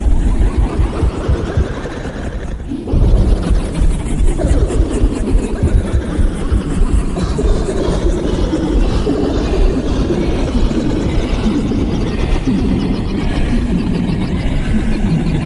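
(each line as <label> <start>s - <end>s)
A man laughing wildly. 0.0s - 15.4s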